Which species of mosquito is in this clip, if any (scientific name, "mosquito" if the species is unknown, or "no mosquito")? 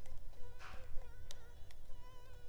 Culex pipiens complex